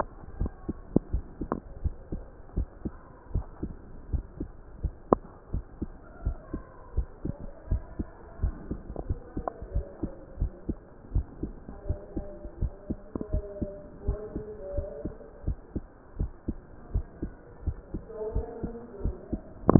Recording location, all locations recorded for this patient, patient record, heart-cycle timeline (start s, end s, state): mitral valve (MV)
aortic valve (AV)+pulmonary valve (PV)+tricuspid valve (TV)+mitral valve (MV)
#Age: Adolescent
#Sex: Male
#Height: 139.0 cm
#Weight: 32.9 kg
#Pregnancy status: False
#Murmur: Absent
#Murmur locations: nan
#Most audible location: nan
#Systolic murmur timing: nan
#Systolic murmur shape: nan
#Systolic murmur grading: nan
#Systolic murmur pitch: nan
#Systolic murmur quality: nan
#Diastolic murmur timing: nan
#Diastolic murmur shape: nan
#Diastolic murmur grading: nan
#Diastolic murmur pitch: nan
#Diastolic murmur quality: nan
#Outcome: Normal
#Campaign: 2015 screening campaign
0.00	2.32	unannotated
2.32	2.56	diastole
2.56	2.68	S1
2.68	2.82	systole
2.82	2.94	S2
2.94	3.30	diastole
3.30	3.46	S1
3.46	3.62	systole
3.62	3.76	S2
3.76	4.08	diastole
4.08	4.24	S1
4.24	4.38	systole
4.38	4.48	S2
4.48	4.80	diastole
4.80	4.94	S1
4.94	5.08	systole
5.08	5.20	S2
5.20	5.52	diastole
5.52	5.64	S1
5.64	5.80	systole
5.80	5.90	S2
5.90	6.22	diastole
6.22	6.38	S1
6.38	6.52	systole
6.52	6.64	S2
6.64	6.94	diastole
6.94	7.08	S1
7.08	7.24	systole
7.24	7.36	S2
7.36	7.68	diastole
7.68	7.84	S1
7.84	7.98	systole
7.98	8.08	S2
8.08	8.40	diastole
8.40	8.56	S1
8.56	8.70	systole
8.70	8.82	S2
8.82	9.08	diastole
9.08	9.20	S1
9.20	9.36	systole
9.36	9.46	S2
9.46	9.72	diastole
9.72	9.86	S1
9.86	10.02	systole
10.02	10.12	S2
10.12	10.38	diastole
10.38	10.52	S1
10.52	10.68	systole
10.68	10.78	S2
10.78	11.12	diastole
11.12	11.26	S1
11.26	11.42	systole
11.42	11.56	S2
11.56	11.86	diastole
11.86	11.98	S1
11.98	12.14	systole
12.14	12.26	S2
12.26	12.60	diastole
12.60	12.74	S1
12.74	12.86	systole
12.86	12.98	S2
12.98	13.32	diastole
13.32	13.46	S1
13.46	13.60	systole
13.60	13.72	S2
13.72	14.06	diastole
14.06	14.20	S1
14.20	14.34	systole
14.34	14.46	S2
14.46	14.76	diastole
14.76	14.90	S1
14.90	15.04	systole
15.04	15.14	S2
15.14	15.46	diastole
15.46	15.58	S1
15.58	15.74	systole
15.74	15.84	S2
15.84	16.18	diastole
16.18	16.32	S1
16.32	16.46	systole
16.46	16.60	S2
16.60	16.92	diastole
16.92	17.06	S1
17.06	17.20	systole
17.20	17.34	S2
17.34	17.64	diastole
17.64	19.79	unannotated